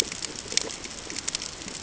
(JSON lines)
{"label": "ambient", "recorder": "HydroMoth"}